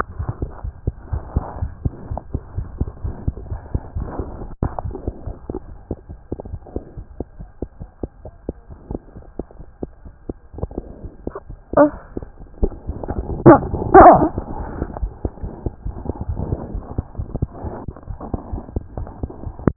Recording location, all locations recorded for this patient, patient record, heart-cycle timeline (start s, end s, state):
aortic valve (AV)
aortic valve (AV)+mitral valve (MV)
#Age: Infant
#Sex: Male
#Height: 70.0 cm
#Weight: 9.7 kg
#Pregnancy status: False
#Murmur: Absent
#Murmur locations: nan
#Most audible location: nan
#Systolic murmur timing: nan
#Systolic murmur shape: nan
#Systolic murmur grading: nan
#Systolic murmur pitch: nan
#Systolic murmur quality: nan
#Diastolic murmur timing: nan
#Diastolic murmur shape: nan
#Diastolic murmur grading: nan
#Diastolic murmur pitch: nan
#Diastolic murmur quality: nan
#Outcome: Abnormal
#Campaign: 2015 screening campaign
0.00	6.50	unannotated
6.50	6.60	S1
6.60	6.74	systole
6.74	6.84	S2
6.84	6.95	diastole
6.95	7.04	S1
7.04	7.18	systole
7.18	7.28	S2
7.28	7.38	diastole
7.38	7.46	S1
7.46	7.60	systole
7.60	7.68	S2
7.68	7.78	diastole
7.78	7.86	S1
7.86	8.02	systole
8.02	8.08	S2
8.08	8.23	diastole
8.23	8.33	S1
8.33	8.46	systole
8.46	8.56	S2
8.56	8.68	diastole
8.68	8.76	S1
8.76	8.88	systole
8.88	8.98	S2
8.98	9.14	diastole
9.14	9.22	S1
9.22	9.37	systole
9.37	9.46	S2
9.46	9.58	diastole
9.58	9.64	S1
9.64	9.80	systole
9.80	9.90	S2
9.90	10.02	diastole
10.02	10.10	S1
10.10	10.28	systole
10.28	10.34	S2
10.34	10.53	diastole
10.53	10.61	S1
10.61	19.76	unannotated